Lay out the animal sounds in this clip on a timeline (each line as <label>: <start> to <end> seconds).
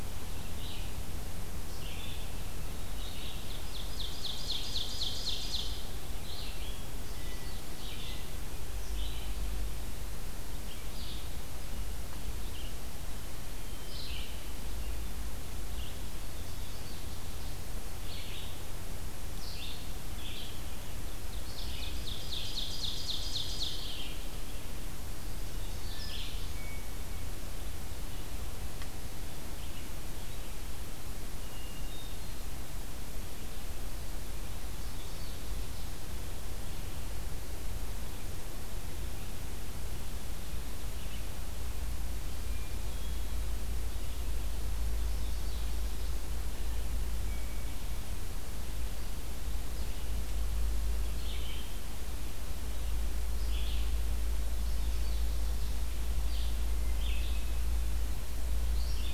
Red-eyed Vireo (Vireo olivaceus): 0.0 to 26.4 seconds
Ovenbird (Seiurus aurocapilla): 2.9 to 5.8 seconds
Ovenbird (Seiurus aurocapilla): 21.6 to 24.0 seconds
Hermit Thrush (Catharus guttatus): 25.8 to 27.3 seconds
Hermit Thrush (Catharus guttatus): 31.4 to 32.5 seconds
Hermit Thrush (Catharus guttatus): 46.5 to 48.0 seconds
Red-eyed Vireo (Vireo olivaceus): 51.0 to 59.1 seconds